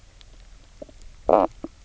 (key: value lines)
label: biophony, knock croak
recorder: SoundTrap 300